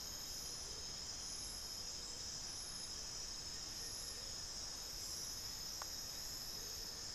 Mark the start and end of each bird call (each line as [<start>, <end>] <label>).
[2.86, 7.15] Buff-throated Woodcreeper (Xiphorhynchus guttatus)
[6.36, 7.15] Amazonian Motmot (Momotus momota)